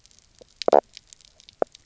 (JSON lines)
{"label": "biophony, knock croak", "recorder": "SoundTrap 300"}